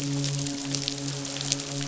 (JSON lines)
{"label": "biophony, midshipman", "recorder": "SoundTrap 500"}